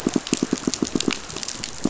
{"label": "biophony, pulse", "recorder": "SoundTrap 500"}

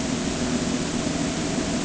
{"label": "anthrophony, boat engine", "recorder": "HydroMoth"}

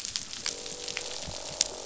{"label": "biophony, croak", "recorder": "SoundTrap 500"}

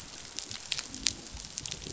{"label": "biophony", "recorder": "SoundTrap 500"}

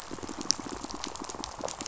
{"label": "biophony, pulse", "recorder": "SoundTrap 500"}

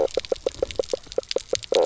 {"label": "biophony, knock croak", "recorder": "SoundTrap 300"}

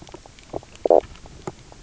{"label": "biophony, knock croak", "recorder": "SoundTrap 300"}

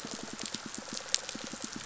{"label": "biophony, pulse", "recorder": "SoundTrap 500"}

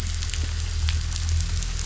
{"label": "anthrophony, boat engine", "recorder": "SoundTrap 500"}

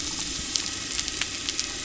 {"label": "anthrophony, boat engine", "recorder": "SoundTrap 300"}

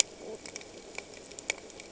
{"label": "ambient", "recorder": "HydroMoth"}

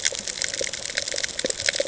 {"label": "ambient", "recorder": "HydroMoth"}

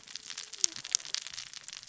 {"label": "biophony, cascading saw", "recorder": "SoundTrap 600 or HydroMoth"}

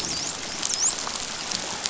{"label": "biophony, dolphin", "recorder": "SoundTrap 500"}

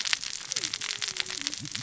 {"label": "biophony, cascading saw", "recorder": "SoundTrap 600 or HydroMoth"}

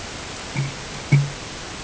{"label": "ambient", "recorder": "HydroMoth"}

